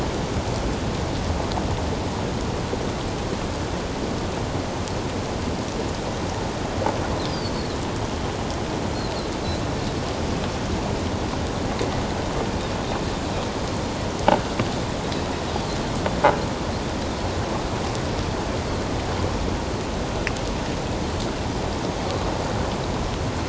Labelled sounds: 7.3	7.8	Pacific white-sided dolphin, 4.1 to 5.1 kHz

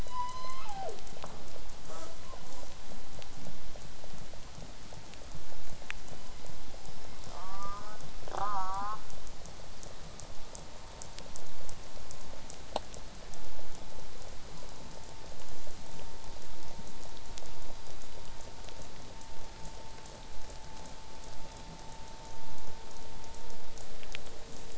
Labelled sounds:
0.0	1.0	killer whale, southern resident, call S01, 0.23 to 8.0 kHz
1.9	2.2	killer whale, southern resident, J pod, call S05, 0 to 8.0 kHz
2.2	2.4	killer whale, southern resident, 0.20 to 1.2 kHz
2.5	2.7	killer whale, southern resident, J pod, call S05, 0.13 to 8.0 kHz
6.0	7.2	killer whale, southern resident, J pod, 1.9 to 3.2 kHz
7.3	8.0	killer whale, southern resident, J pod, call S04, 0.39 to 1.8 kHz
8.3	9.0	killer whale, southern resident, J pod, call S04, 0.12 to 6.9 kHz

